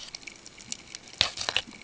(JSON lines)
{"label": "ambient", "recorder": "HydroMoth"}